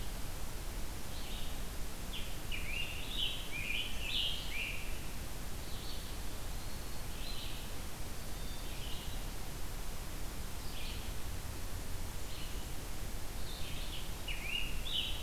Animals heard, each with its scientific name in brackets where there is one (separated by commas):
Scarlet Tanager (Piranga olivacea), Eastern Wood-Pewee (Contopus virens), Red-eyed Vireo (Vireo olivaceus)